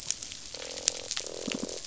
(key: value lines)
label: biophony, croak
recorder: SoundTrap 500